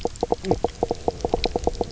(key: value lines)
label: biophony, knock croak
recorder: SoundTrap 300